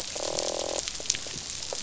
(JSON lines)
{"label": "biophony, croak", "recorder": "SoundTrap 500"}